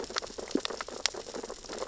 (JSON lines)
{"label": "biophony, sea urchins (Echinidae)", "recorder": "SoundTrap 600 or HydroMoth"}